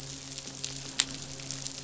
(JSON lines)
{"label": "biophony, midshipman", "recorder": "SoundTrap 500"}